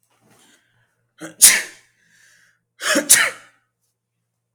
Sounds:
Sneeze